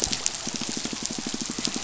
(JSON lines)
{"label": "biophony, pulse", "recorder": "SoundTrap 500"}